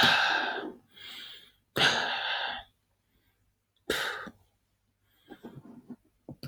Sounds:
Sigh